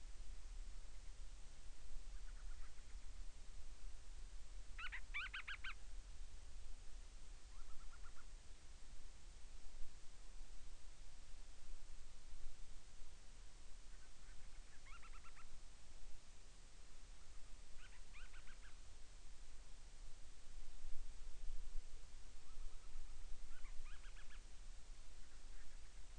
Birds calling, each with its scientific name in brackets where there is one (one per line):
Band-rumped Storm-Petrel (Hydrobates castro)